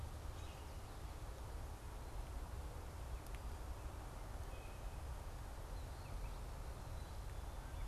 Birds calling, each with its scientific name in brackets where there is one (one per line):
Common Grackle (Quiscalus quiscula)